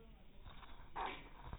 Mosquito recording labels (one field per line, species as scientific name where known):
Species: no mosquito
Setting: cup